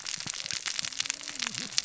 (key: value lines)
label: biophony, cascading saw
recorder: SoundTrap 600 or HydroMoth